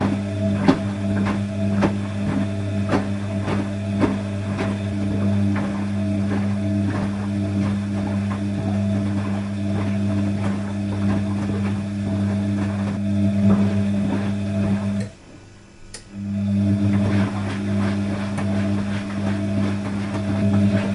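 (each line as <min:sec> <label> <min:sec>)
0:00.0 A washing or drying machine runs rhythmically with pauses in between. 0:20.9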